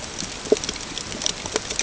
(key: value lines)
label: ambient
recorder: HydroMoth